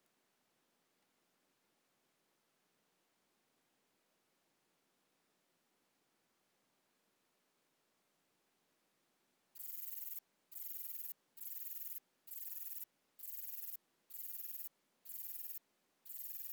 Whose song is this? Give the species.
Rhacocleis lithoscirtetes